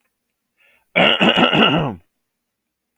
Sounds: Throat clearing